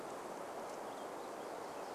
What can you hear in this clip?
Purple Finch song